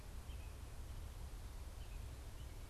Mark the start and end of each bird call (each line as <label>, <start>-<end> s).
unidentified bird, 0.0-2.7 s